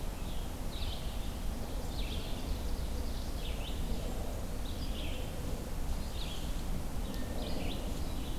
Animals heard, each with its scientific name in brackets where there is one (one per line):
Ovenbird (Seiurus aurocapilla)
Red-eyed Vireo (Vireo olivaceus)